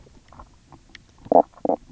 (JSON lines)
{"label": "biophony, knock croak", "recorder": "SoundTrap 300"}